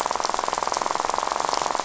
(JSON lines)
{"label": "biophony, rattle", "recorder": "SoundTrap 500"}